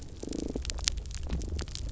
{"label": "biophony, pulse", "recorder": "SoundTrap 300"}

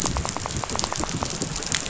{"label": "biophony, rattle", "recorder": "SoundTrap 500"}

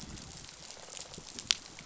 {"label": "biophony, rattle response", "recorder": "SoundTrap 500"}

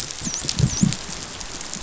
{"label": "biophony, dolphin", "recorder": "SoundTrap 500"}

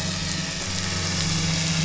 {"label": "anthrophony, boat engine", "recorder": "SoundTrap 500"}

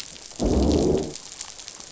{"label": "biophony, growl", "recorder": "SoundTrap 500"}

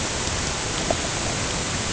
{"label": "ambient", "recorder": "HydroMoth"}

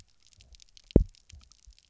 {"label": "biophony, double pulse", "recorder": "SoundTrap 300"}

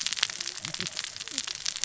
{"label": "biophony, cascading saw", "recorder": "SoundTrap 600 or HydroMoth"}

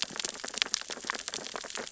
{"label": "biophony, sea urchins (Echinidae)", "recorder": "SoundTrap 600 or HydroMoth"}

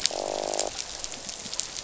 {"label": "biophony, croak", "recorder": "SoundTrap 500"}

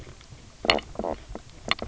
{"label": "biophony, knock croak", "recorder": "SoundTrap 300"}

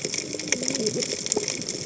{"label": "biophony, cascading saw", "recorder": "HydroMoth"}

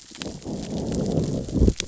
{"label": "biophony, growl", "recorder": "SoundTrap 600 or HydroMoth"}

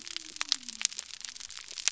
{"label": "biophony", "recorder": "SoundTrap 300"}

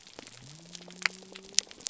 {"label": "biophony", "recorder": "SoundTrap 300"}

